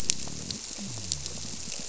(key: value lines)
label: biophony
recorder: SoundTrap 300